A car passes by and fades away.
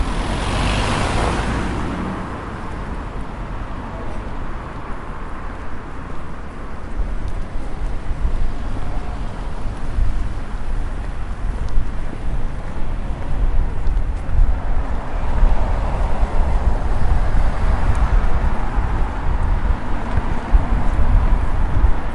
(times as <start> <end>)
0.0 2.7